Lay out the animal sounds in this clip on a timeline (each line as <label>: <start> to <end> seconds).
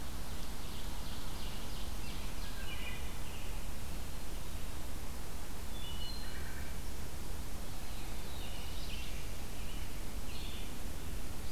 Ovenbird (Seiurus aurocapilla): 0.1 to 2.5 seconds
American Robin (Turdus migratorius): 1.9 to 3.6 seconds
Wood Thrush (Hylocichla mustelina): 2.5 to 3.3 seconds
Wood Thrush (Hylocichla mustelina): 5.7 to 6.6 seconds
Black-throated Blue Warbler (Setophaga caerulescens): 7.7 to 9.6 seconds
American Robin (Turdus migratorius): 8.3 to 10.8 seconds
Red-eyed Vireo (Vireo olivaceus): 8.6 to 11.5 seconds